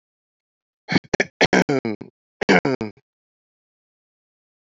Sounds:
Throat clearing